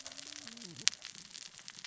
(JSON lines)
{"label": "biophony, cascading saw", "recorder": "SoundTrap 600 or HydroMoth"}